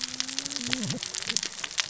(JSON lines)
{"label": "biophony, cascading saw", "recorder": "SoundTrap 600 or HydroMoth"}